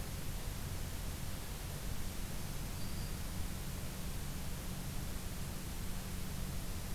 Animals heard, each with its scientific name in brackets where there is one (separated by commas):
Black-throated Green Warbler (Setophaga virens)